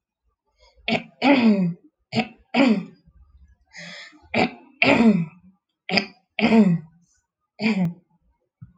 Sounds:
Throat clearing